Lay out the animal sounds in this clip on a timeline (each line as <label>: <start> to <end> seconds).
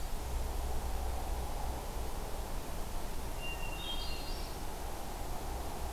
Hermit Thrush (Catharus guttatus): 3.0 to 4.6 seconds